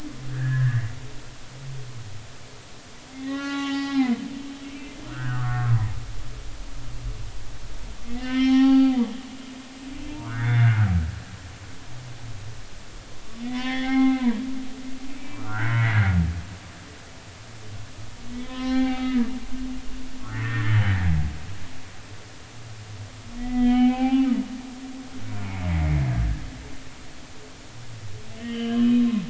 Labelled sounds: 3.2	4.2	humpback whale, 0.80 to 4.0 kHz
4.7	5.9	humpback whale, 0.90 to 2.4 kHz
8.2	9.0	humpback whale, 0.80 to 4.6 kHz
10.2	10.9	humpback whale, 1.0 to 3.7 kHz
13.4	14.4	humpback whale, 0.80 to 4.3 kHz
15.2	16.2	humpback whale, 0.93 to 2.7 kHz
18.4	19.2	humpback whale, 0.80 to 4.2 kHz
20.3	21.0	humpback whale, 1.3 to 3.1 kHz
23.4	24.3	humpback whale, 0.80 to 3.3 kHz
25.5	26.4	humpback whale, 1.5 to 2.6 kHz
28.4	29.2	humpback whale, 1.6 to 3.9 kHz

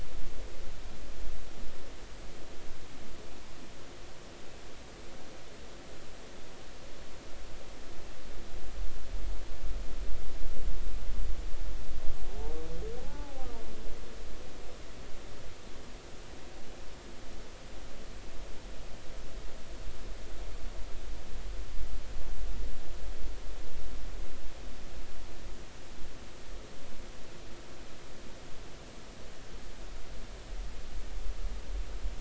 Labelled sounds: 13.0	13.5	humpback whale, 0.80 to 0.93 kHz

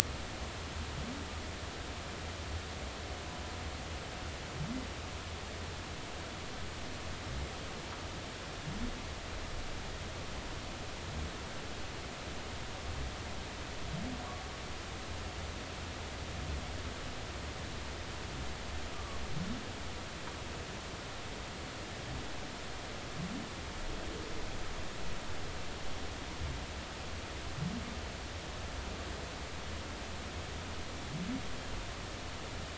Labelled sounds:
18.9	19.2	humpback whale, 1.1 to 1.2 kHz

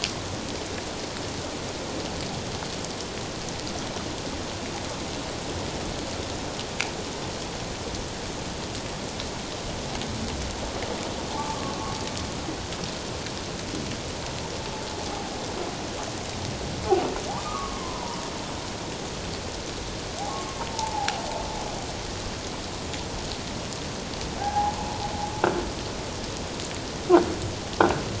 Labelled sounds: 11.3	11.7	humpback whale, 0.81 to 1.2 kHz
17.3	18.2	humpback whale, 0.78 to 1.3 kHz
20.7	21.2	humpback whale, 0.78 to 0.97 kHz
24.4	24.8	humpback whale, 0.78 to 1.7 kHz

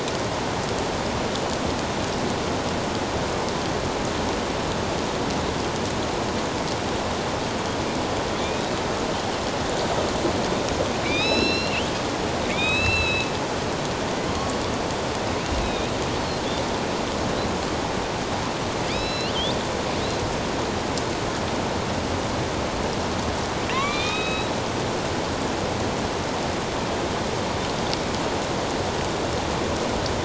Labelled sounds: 11.0	12.0	killer whale, northern resident, A clan, AB subclan, 2.2 to 5.5 kHz
12.5	13.3	killer whale, northern resident, A clan, AB subclan, 2.1 to 4.1 kHz
15.6	15.9	killer whale, northern resident, A clan, AB subclan, 2.3 to 4.0 kHz
18.9	19.4	killer whale, northern resident, A clan, AB subclan, 2.1 to 5.6 kHz
23.7	24.5	killer whale, northern resident, A clan, AB subclan, 0.94 to 4.0 kHz

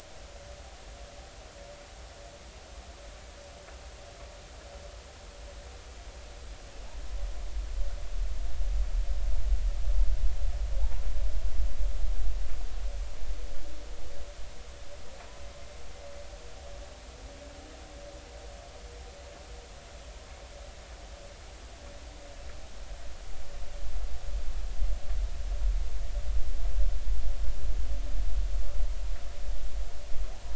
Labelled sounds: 10.8	11.0	humpback whale, 0.80 to 1.0 kHz

